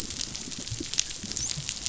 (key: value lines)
label: biophony, dolphin
recorder: SoundTrap 500